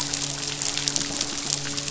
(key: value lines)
label: biophony, midshipman
recorder: SoundTrap 500